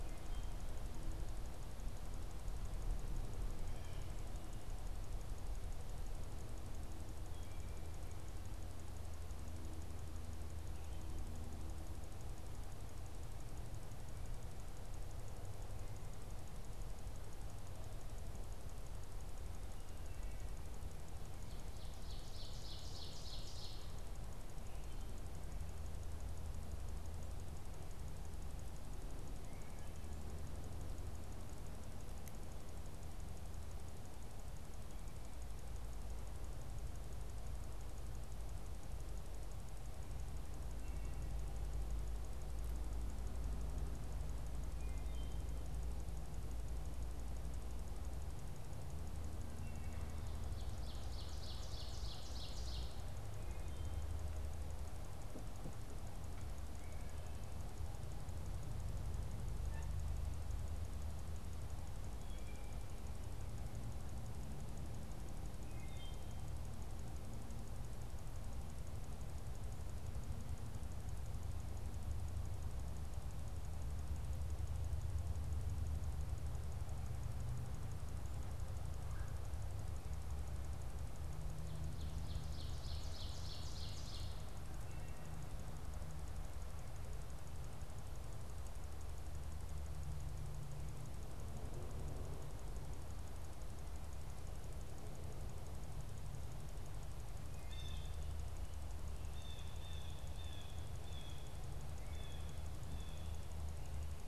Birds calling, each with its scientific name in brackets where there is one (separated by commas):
Blue Jay (Cyanocitta cristata), Red-bellied Woodpecker (Melanerpes carolinus), Wood Thrush (Hylocichla mustelina), Ovenbird (Seiurus aurocapilla)